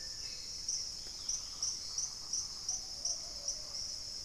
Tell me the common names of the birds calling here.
Dusky-capped Greenlet, Hauxwell's Thrush, Plumbeous Pigeon